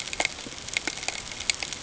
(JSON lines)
{"label": "ambient", "recorder": "HydroMoth"}